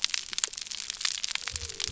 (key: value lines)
label: biophony
recorder: SoundTrap 300